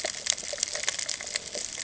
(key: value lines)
label: ambient
recorder: HydroMoth